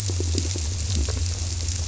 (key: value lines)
label: biophony, squirrelfish (Holocentrus)
recorder: SoundTrap 300

label: biophony
recorder: SoundTrap 300